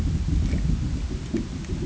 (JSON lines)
{"label": "ambient", "recorder": "HydroMoth"}